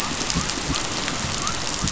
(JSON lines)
{"label": "biophony", "recorder": "SoundTrap 500"}